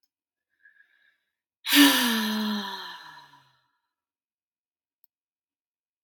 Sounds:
Sigh